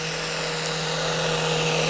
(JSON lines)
{"label": "anthrophony, boat engine", "recorder": "SoundTrap 500"}